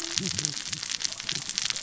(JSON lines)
{"label": "biophony, cascading saw", "recorder": "SoundTrap 600 or HydroMoth"}